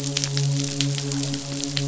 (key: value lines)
label: biophony, midshipman
recorder: SoundTrap 500